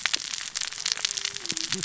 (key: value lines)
label: biophony, cascading saw
recorder: SoundTrap 600 or HydroMoth